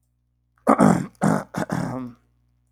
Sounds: Throat clearing